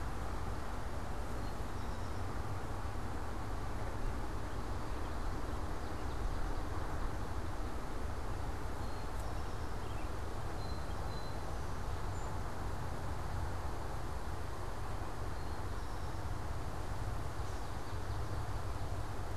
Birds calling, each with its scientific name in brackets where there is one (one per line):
Eastern Towhee (Pipilo erythrophthalmus)
Swamp Sparrow (Melospiza georgiana)
unidentified bird
Song Sparrow (Melospiza melodia)